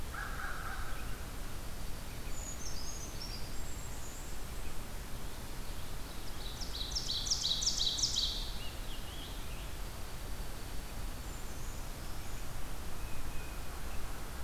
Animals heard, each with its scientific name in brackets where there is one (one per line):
Brown Creeper (Certhia americana)
Dark-eyed Junco (Junco hyemalis)
Tufted Titmouse (Baeolophus bicolor)
Golden-crowned Kinglet (Regulus satrapa)
Scarlet Tanager (Piranga olivacea)
Ovenbird (Seiurus aurocapilla)
American Crow (Corvus brachyrhynchos)